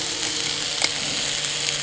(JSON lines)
{"label": "anthrophony, boat engine", "recorder": "HydroMoth"}